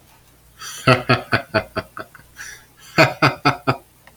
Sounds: Laughter